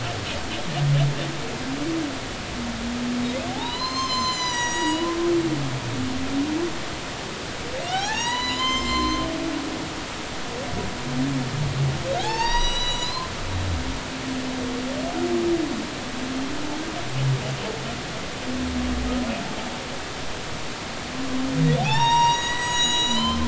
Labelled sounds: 3.5	5.1	humpback whale, 0.80 to 8.0 kHz
7.8	9.2	humpback whale, 0.80 to 8.0 kHz
12.2	13.3	humpback whale, 0.80 to 8.0 kHz
21.8	23.4	humpback whale, 0.80 to 7.8 kHz

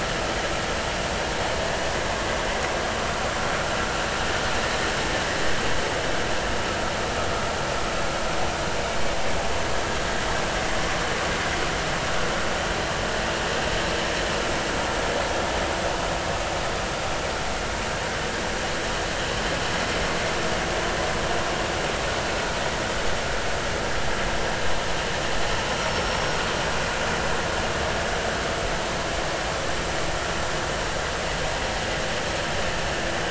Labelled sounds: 25.8	26.4	killer whale, 5.4 to 5.8 kHz

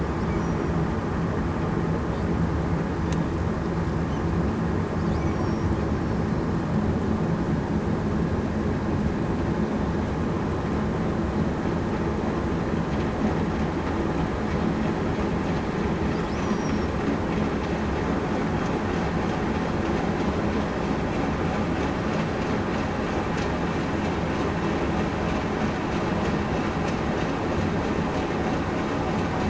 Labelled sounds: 5.3	5.7	killer whale, southern resident, 5.5 to 5.6 kHz
16.3	16.9	killer whale, southern resident, 5.5 to 6.0 kHz

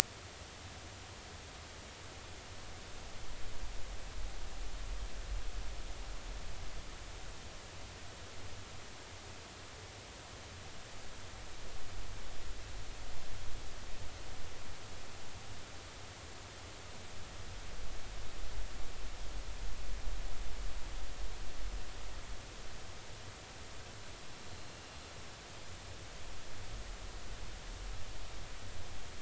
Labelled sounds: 24.5	24.8	killer whale, northern resident, 4.0 to 4.3 kHz

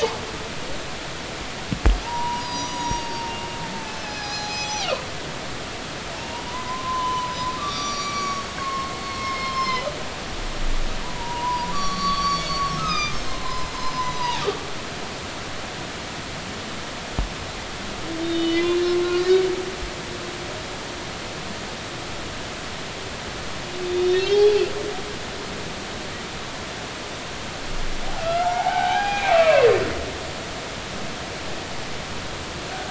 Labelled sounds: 2.0	5.0	humpback whale, 0.80 to 6.9 kHz
6.2	9.9	humpback whale, 0.90 to 6.7 kHz
11.0	13.7	humpback whale, 0.90 to 5.8 kHz
14.2	14.4	humpback whale, 0.80 to 1.0 kHz
18.2	19.0	humpback whale, 2.9 to 3.9 kHz
23.8	24.6	humpback whale, 2.5 to 4.7 kHz
28.2	29.7	humpback whale, 0.80 to 2.8 kHz

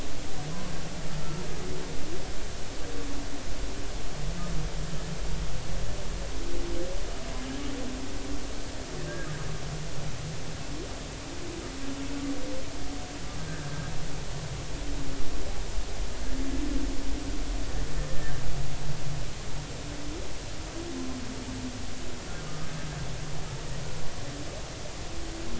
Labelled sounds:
22.4	22.7	humpback whale, 1.2 to 1.3 kHz

